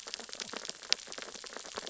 {"label": "biophony, sea urchins (Echinidae)", "recorder": "SoundTrap 600 or HydroMoth"}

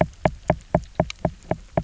{"label": "biophony, knock", "recorder": "SoundTrap 300"}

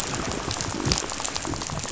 {"label": "biophony, rattle", "recorder": "SoundTrap 500"}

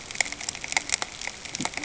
{"label": "ambient", "recorder": "HydroMoth"}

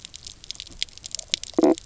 {"label": "biophony, knock croak", "recorder": "SoundTrap 300"}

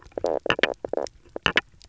{"label": "biophony, knock croak", "recorder": "SoundTrap 300"}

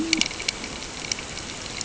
{"label": "ambient", "recorder": "HydroMoth"}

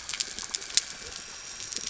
{"label": "anthrophony, boat engine", "recorder": "SoundTrap 300"}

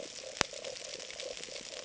{"label": "ambient", "recorder": "HydroMoth"}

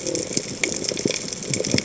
{"label": "biophony", "recorder": "HydroMoth"}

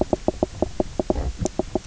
{"label": "biophony, knock croak", "recorder": "SoundTrap 300"}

